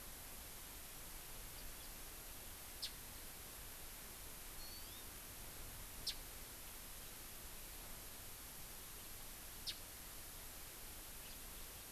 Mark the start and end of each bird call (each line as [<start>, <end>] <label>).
[1.54, 1.94] House Finch (Haemorhous mexicanus)
[2.84, 2.94] Japanese Bush Warbler (Horornis diphone)
[4.64, 5.04] Hawaii Amakihi (Chlorodrepanis virens)
[6.04, 6.14] Japanese Bush Warbler (Horornis diphone)
[9.64, 9.74] Japanese Bush Warbler (Horornis diphone)